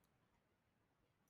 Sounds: Laughter